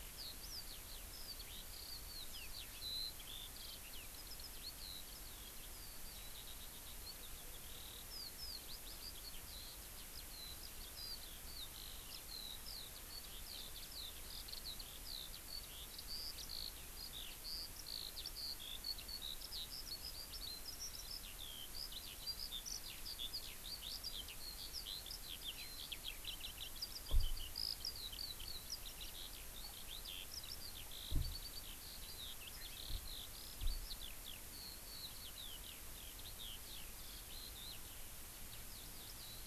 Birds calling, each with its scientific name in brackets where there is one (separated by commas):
Eurasian Skylark (Alauda arvensis)